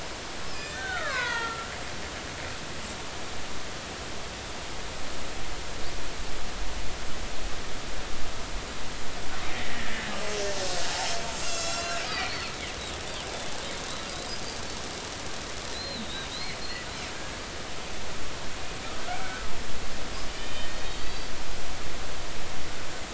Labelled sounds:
0.5	1.9	killer whale, Bigg's (transient), 0.86 to 5.4 kHz
9.5	10.1	killer whale, Bigg's (transient), 1.6 to 2.0 kHz
11.4	12.5	killer whale, Bigg's (transient), 1.3 to 7.6 kHz
15.7	16.6	killer whale, Bigg's (transient), 3.6 to 4.4 kHz
17.1	17.4	killer whale, Bigg's (transient), 1.6 to 1.8 kHz
19.1	19.5	killer whale, Bigg's (transient), 1.2 to 2.4 kHz
20.4	21.3	killer whale, Bigg's (transient), 1.8 to 4.7 kHz

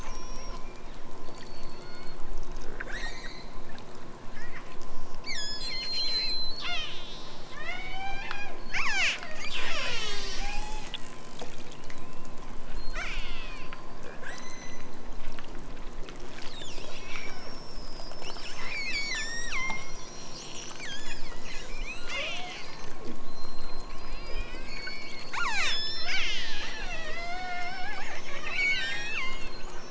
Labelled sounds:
0.0	2.3	killer whale, southern Alaska resident, 1.0 to 8.0 kHz
2.7	3.6	killer whale, southern Alaska resident, 1.1 to 8.0 kHz
5.2	11.0	killer whale, southern Alaska resident, 0.23 to 8.0 kHz
12.7	13.8	killer whale, southern Alaska resident, 1.1 to 8.0 kHz
14.1	15.0	killer whale, southern Alaska resident, 1.4 to 8.0 kHz
18.8	20.0	killer whale, southern Alaska resident, 0.87 to 8.0 kHz
20.6	21.3	killer whale, southern Alaska resident, 1.2 to 8.0 kHz
21.9	22.7	killer whale, southern Alaska resident, 0.32 to 8.0 kHz
24.2	29.5	killer whale, southern Alaska resident, 0.32 to 8.0 kHz

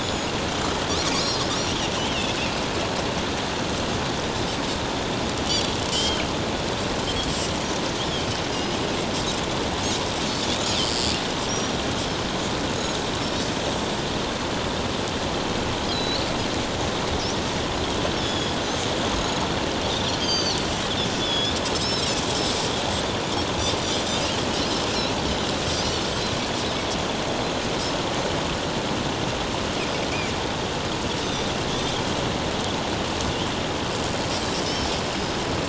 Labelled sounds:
0.0	0.3	Pacific white-sided dolphin, 5.0 to 6.9 kHz
2.0	2.4	Pacific white-sided dolphin, 2.5 to 3.3 kHz
5.9	6.2	Pacific white-sided dolphin, 2.8 to 3.4 kHz
11.5	11.8	Pacific white-sided dolphin, 5.4 to 5.8 kHz
13.2	13.5	Pacific white-sided dolphin, 5.3 to 6.0 kHz
15.9	16.3	Pacific white-sided dolphin, 3.9 to 4.5 kHz
18.2	18.6	Pacific white-sided dolphin, 3.2 to 6.9 kHz
20.2	22.1	Pacific white-sided dolphin, 2.9 to 6.5 kHz
31.7	32.0	Pacific white-sided dolphin, 3.2 to 3.6 kHz

